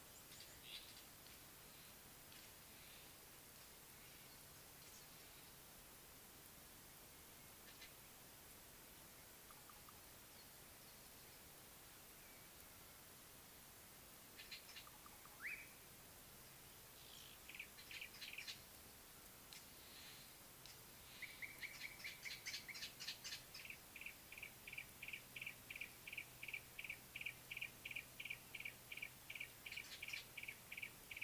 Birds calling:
Brown Babbler (Turdoides plebejus), Yellow-breasted Apalis (Apalis flavida), Slate-colored Boubou (Laniarius funebris)

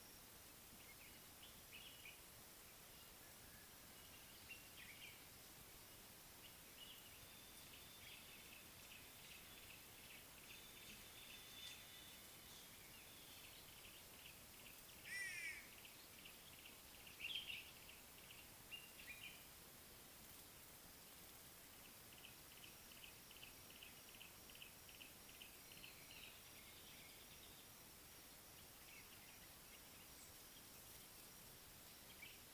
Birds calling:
Yellow-breasted Apalis (Apalis flavida), White-bellied Go-away-bird (Corythaixoides leucogaster), Common Bulbul (Pycnonotus barbatus)

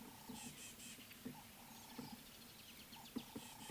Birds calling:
Ring-necked Dove (Streptopelia capicola)

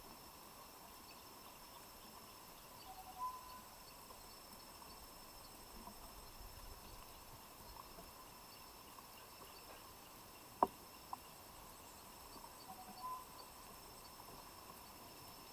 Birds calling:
Tropical Boubou (Laniarius major)

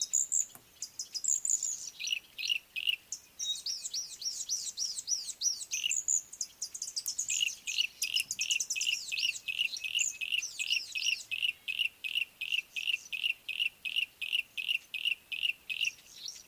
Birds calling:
Red-fronted Prinia (Prinia rufifrons), Yellow-breasted Apalis (Apalis flavida)

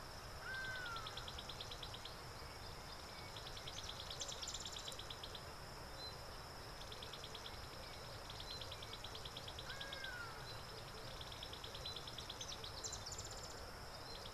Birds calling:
Hadada Ibis (Bostrychia hagedash), Variable Sunbird (Cinnyris venustus)

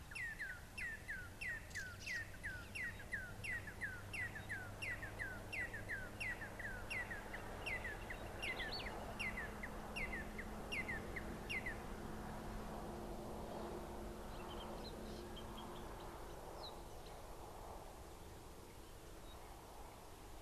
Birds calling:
Red-and-yellow Barbet (Trachyphonus erythrocephalus), Red-backed Scrub-Robin (Cercotrichas leucophrys)

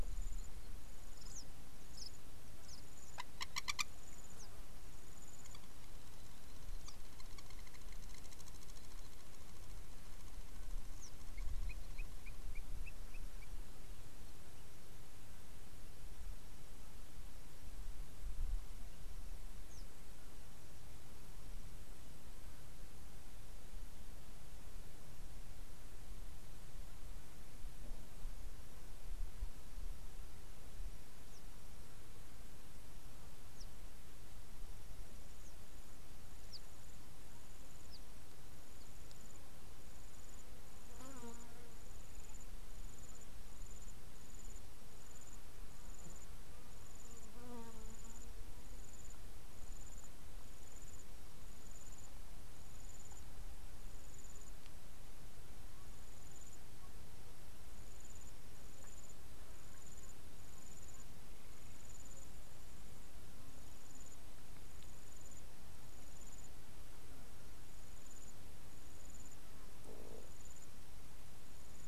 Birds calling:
Blacksmith Lapwing (Vanellus armatus)

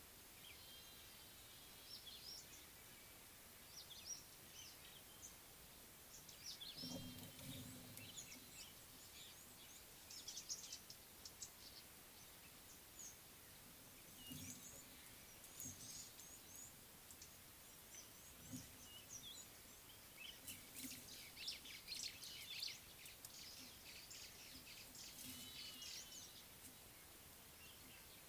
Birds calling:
White-browed Sparrow-Weaver (Plocepasser mahali), Red-cheeked Cordonbleu (Uraeginthus bengalus), Speckled Mousebird (Colius striatus)

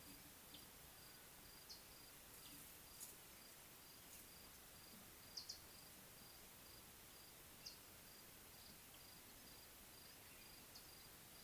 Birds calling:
Mariqua Sunbird (Cinnyris mariquensis)

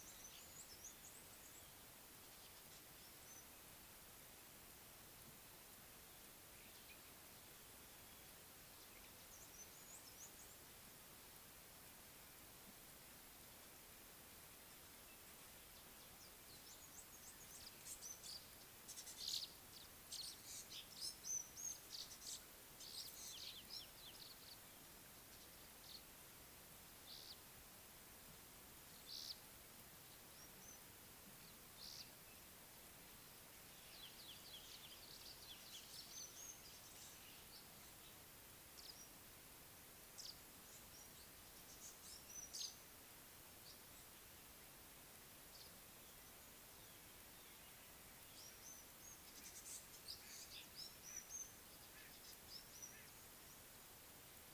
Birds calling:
African Gray Flycatcher (Bradornis microrhynchus)

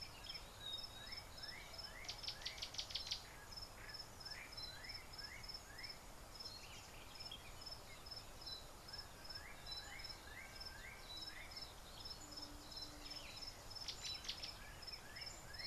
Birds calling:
Gray-backed Camaroptera (Camaroptera brevicaudata)

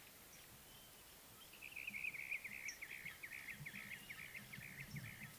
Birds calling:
Brown-crowned Tchagra (Tchagra australis)

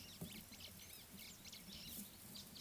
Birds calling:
White-browed Sparrow-Weaver (Plocepasser mahali)

